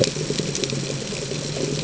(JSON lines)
{"label": "ambient", "recorder": "HydroMoth"}